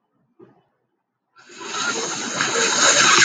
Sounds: Sniff